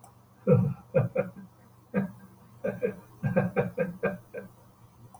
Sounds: Laughter